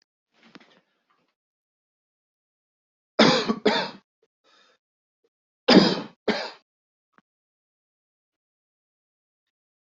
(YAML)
expert_labels:
- quality: ok
  cough_type: dry
  dyspnea: false
  wheezing: false
  stridor: false
  choking: false
  congestion: false
  nothing: true
  diagnosis: lower respiratory tract infection
  severity: mild
- quality: good
  cough_type: wet
  dyspnea: false
  wheezing: false
  stridor: false
  choking: false
  congestion: false
  nothing: true
  diagnosis: COVID-19
  severity: mild
- quality: good
  cough_type: dry
  dyspnea: false
  wheezing: false
  stridor: false
  choking: false
  congestion: false
  nothing: true
  diagnosis: upper respiratory tract infection
  severity: mild
- quality: good
  cough_type: dry
  dyspnea: false
  wheezing: false
  stridor: false
  choking: false
  congestion: false
  nothing: true
  diagnosis: upper respiratory tract infection
  severity: mild
age: 29
gender: male
respiratory_condition: false
fever_muscle_pain: true
status: symptomatic